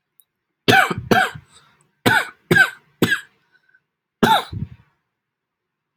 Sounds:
Cough